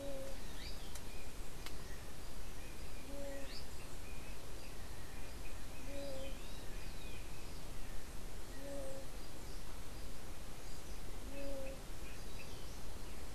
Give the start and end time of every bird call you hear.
[0.00, 3.90] Azara's Spinetail (Synallaxis azarae)
[0.00, 13.35] unidentified bird

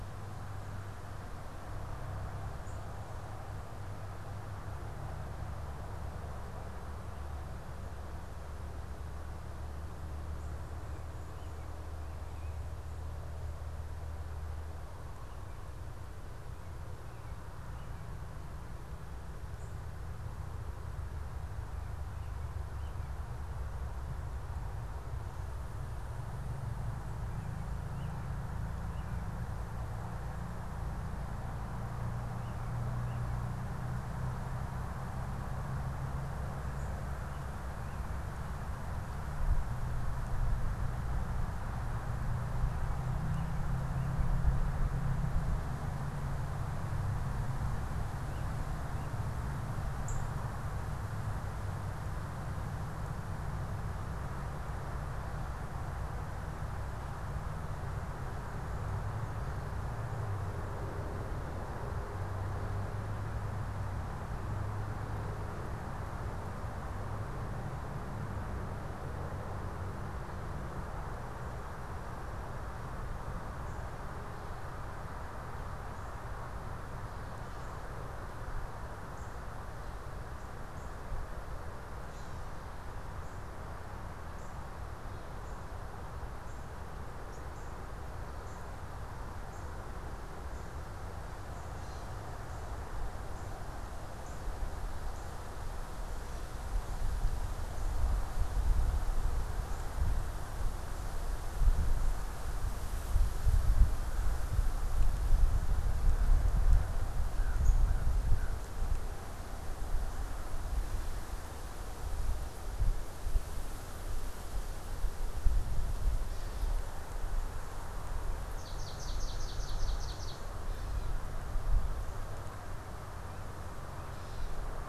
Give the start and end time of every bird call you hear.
[2.48, 2.88] Northern Cardinal (Cardinalis cardinalis)
[11.18, 12.68] American Robin (Turdus migratorius)
[27.78, 33.88] American Robin (Turdus migratorius)
[42.88, 49.48] American Robin (Turdus migratorius)
[49.88, 50.28] Northern Cardinal (Cardinalis cardinalis)
[79.08, 110.68] Northern Cardinal (Cardinalis cardinalis)
[116.18, 116.88] Gray Catbird (Dumetella carolinensis)
[118.38, 120.48] Swamp Sparrow (Melospiza georgiana)
[120.68, 124.68] Gray Catbird (Dumetella carolinensis)

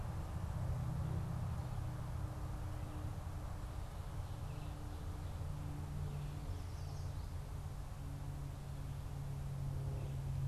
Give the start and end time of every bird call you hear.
[6.14, 7.54] Yellow Warbler (Setophaga petechia)

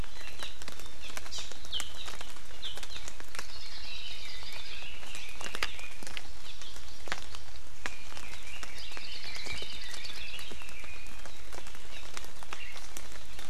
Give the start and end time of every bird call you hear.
[0.34, 0.54] Hawaii Amakihi (Chlorodrepanis virens)
[1.34, 1.44] Hawaii Amakihi (Chlorodrepanis virens)
[1.74, 1.84] Warbling White-eye (Zosterops japonicus)
[2.64, 2.74] Warbling White-eye (Zosterops japonicus)
[3.34, 4.84] Hawaii Creeper (Loxops mana)
[3.54, 6.14] Red-billed Leiothrix (Leiothrix lutea)
[6.44, 7.54] Hawaii Amakihi (Chlorodrepanis virens)
[7.84, 11.34] Red-billed Leiothrix (Leiothrix lutea)
[8.94, 10.54] Hawaii Creeper (Loxops mana)

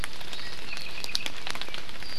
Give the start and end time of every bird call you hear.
[0.60, 1.30] Apapane (Himatione sanguinea)

